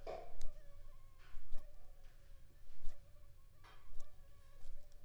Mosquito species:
mosquito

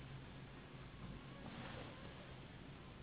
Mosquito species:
Anopheles gambiae s.s.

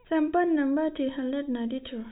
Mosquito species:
no mosquito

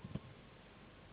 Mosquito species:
Anopheles gambiae s.s.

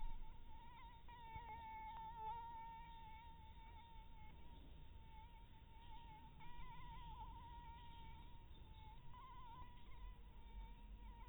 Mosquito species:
Anopheles harrisoni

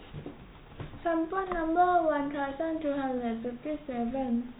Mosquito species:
no mosquito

